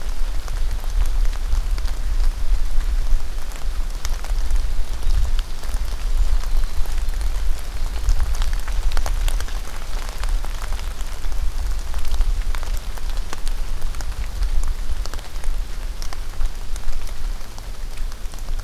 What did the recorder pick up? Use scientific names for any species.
Troglodytes hiemalis